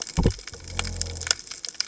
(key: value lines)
label: biophony
recorder: HydroMoth